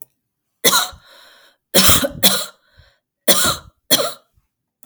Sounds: Cough